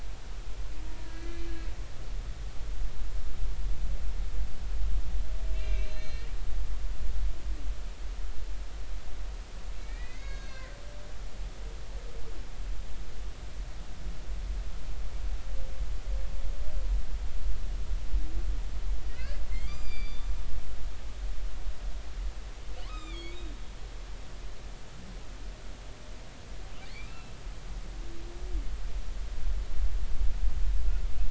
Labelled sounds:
1.0	1.5	humpback whale, 1.6 to 2.4 kHz
5.5	6.3	humpback whale, 1.8 to 6.5 kHz
9.8	10.8	humpback whale, 1.5 to 6.7 kHz
19.1	20.3	humpback whale, 1.4 to 7.4 kHz
22.8	23.4	humpback whale, 0.99 to 5.1 kHz
27.1	27.3	humpback whale, 2.6 to 2.8 kHz

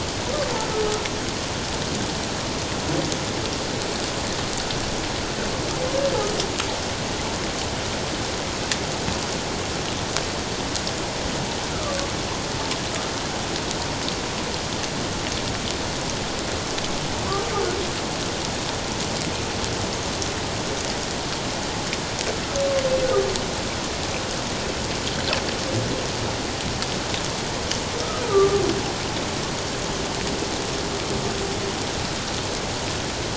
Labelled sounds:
11.7	12.0	humpback whale, 1.1 to 1.4 kHz
28.3	28.6	humpback whale, 1.1 to 1.3 kHz

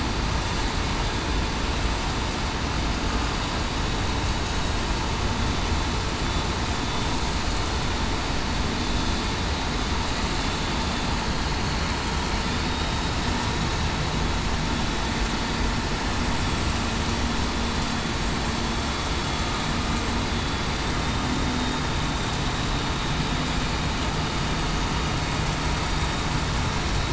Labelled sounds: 12.7	13.1	vessel noise, 3.7 to 3.8 kHz

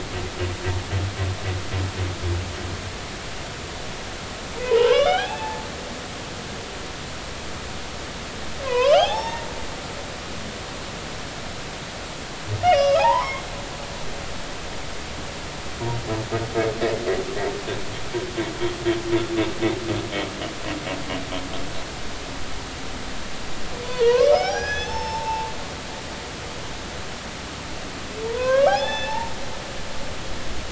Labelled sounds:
4.6	5.6	humpback whale, 0.80 to 5.2 kHz
8.6	9.5	humpback whale, 0.80 to 5.5 kHz
12.6	13.4	humpback whale, 0.80 to 5.2 kHz
23.8	25.5	humpback whale, 0.80 to 6.3 kHz
28.2	29.3	humpback whale, 0.80 to 5.5 kHz

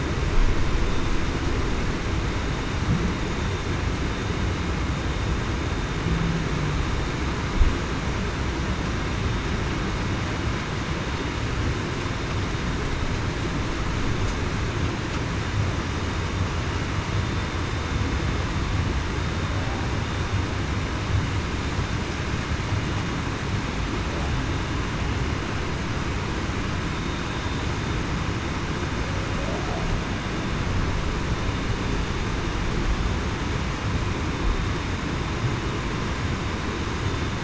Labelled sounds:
29.4	29.8	humpback whale, 0.49 to 0.77 kHz

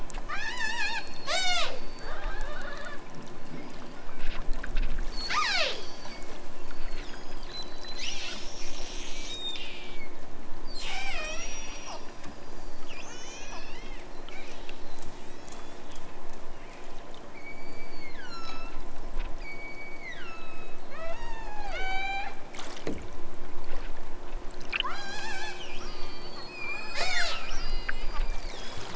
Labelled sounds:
0.2	3.1	killer whale, southern Alaska resident, 0.28 to 8.0 kHz
3.4	4.0	killer whale, southern Alaska resident, 2.6 to 5.6 kHz
5.0	8.5	killer whale, southern Alaska resident, 0.14 to 8.0 kHz
9.2	10.2	killer whale, southern Alaska resident, 1.9 to 8.0 kHz
10.6	12.0	killer whale, southern Alaska resident, 0.28 to 8.0 kHz
12.8	14.0	killer whale, southern Alaska resident, 1.1 to 7.6 kHz
14.2	14.9	killer whale, southern Alaska resident, 1.8 to 8.0 kHz
15.2	15.9	killer whale, southern Alaska resident, 2.2 to 8.0 kHz
16.5	18.9	killer whale, southern Alaska resident, 0.97 to 8.0 kHz
19.3	22.4	killer whale, southern Alaska resident, 0.32 to 8.0 kHz
24.7	28.9	killer whale, southern Alaska resident, 0.32 to 8.0 kHz

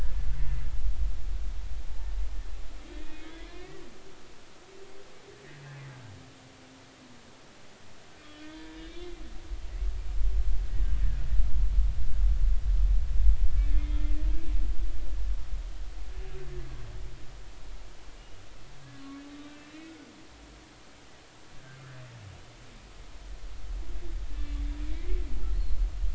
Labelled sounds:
2.9	3.8	humpback whale, 1.7 to 2.7 kHz
8.5	9.1	humpback whale, 0.90 to 3.8 kHz
13.5	14.0	humpback whale, 1.7 to 2.2 kHz
16.5	16.8	humpback whale, 1.5 to 1.8 kHz
24.4	25.2	humpback whale, 1.9 to 3.6 kHz
25.5	25.8	humpback whale, 4.0 to 4.3 kHz

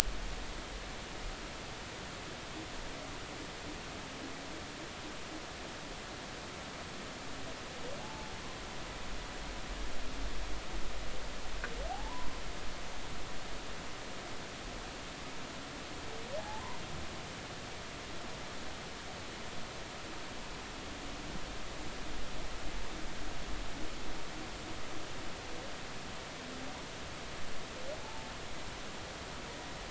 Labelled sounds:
8.0	8.3	humpback whale, 0.80 to 0.93 kHz
11.9	12.3	humpback whale, 0.80 to 1.1 kHz
16.4	16.6	humpback whale, 0.80 to 0.93 kHz
28.0	28.3	humpback whale, 0.80 to 0.96 kHz

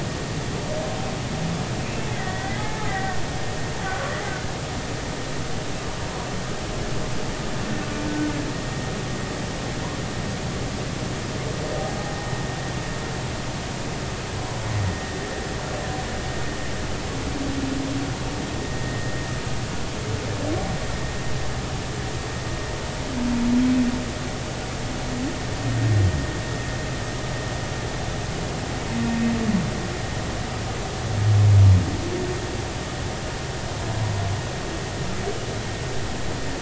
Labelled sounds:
2.1	2.6	humpback whale, 1.8 to 2.1 kHz
2.9	4.1	humpback whale, 1.3 to 2.0 kHz
18.6	19.1	vessel noise, 1.8 to 2.0 kHz

